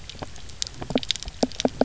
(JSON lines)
{"label": "biophony, knock croak", "recorder": "SoundTrap 300"}